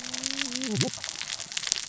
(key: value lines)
label: biophony, cascading saw
recorder: SoundTrap 600 or HydroMoth